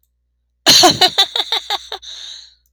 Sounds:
Laughter